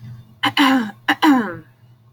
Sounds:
Throat clearing